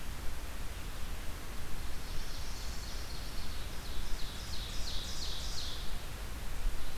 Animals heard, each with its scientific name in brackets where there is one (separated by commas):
Ovenbird (Seiurus aurocapilla), Northern Parula (Setophaga americana)